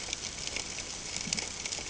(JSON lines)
{"label": "ambient", "recorder": "HydroMoth"}